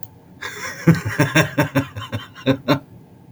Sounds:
Laughter